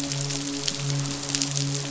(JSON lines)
{"label": "biophony, midshipman", "recorder": "SoundTrap 500"}